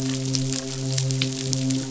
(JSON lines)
{"label": "biophony, midshipman", "recorder": "SoundTrap 500"}